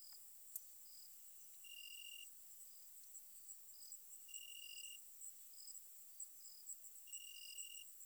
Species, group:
Oecanthus allardi
Orthoptera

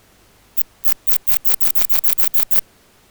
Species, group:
Phaneroptera falcata
Orthoptera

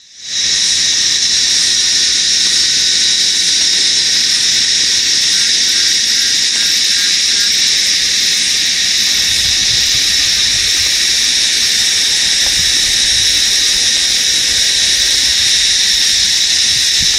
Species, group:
Psaltoda moerens
Cicadidae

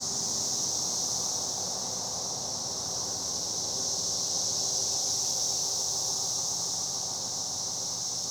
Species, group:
Magicicada tredecassini
Cicadidae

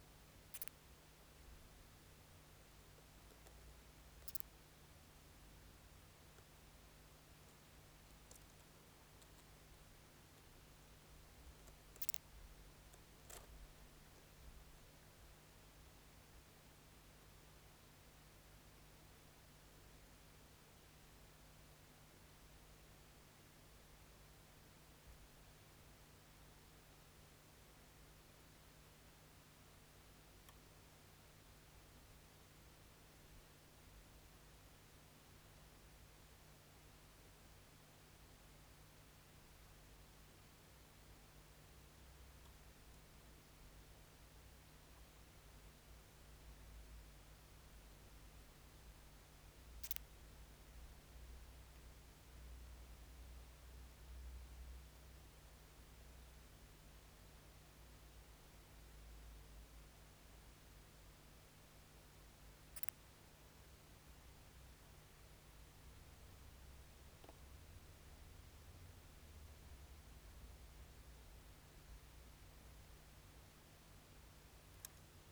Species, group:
Leptophyes calabra
Orthoptera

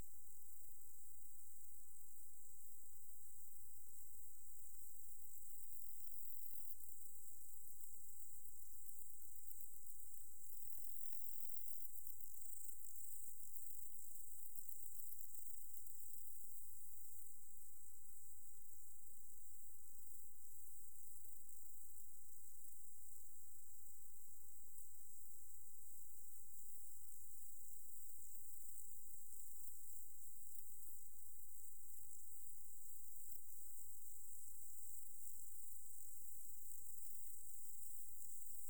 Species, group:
Saga hellenica
Orthoptera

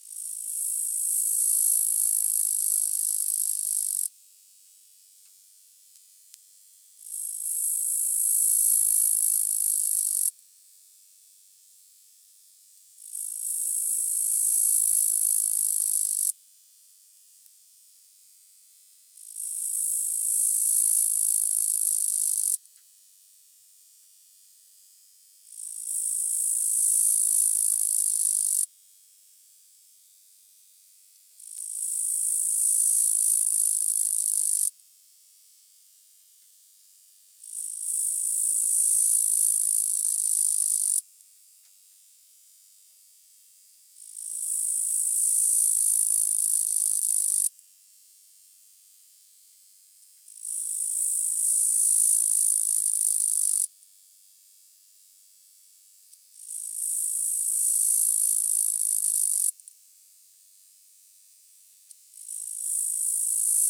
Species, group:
Tettigonia caudata
Orthoptera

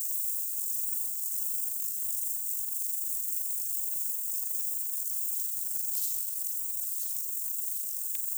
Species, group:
Stauroderus scalaris
Orthoptera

